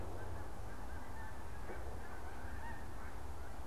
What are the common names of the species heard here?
Snow Goose